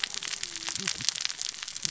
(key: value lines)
label: biophony, cascading saw
recorder: SoundTrap 600 or HydroMoth